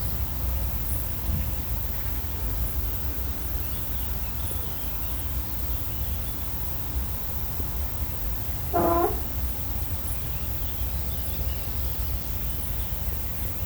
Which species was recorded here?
Pholidoptera femorata